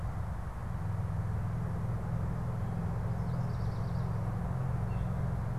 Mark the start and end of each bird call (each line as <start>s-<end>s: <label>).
3.2s-4.2s: unidentified bird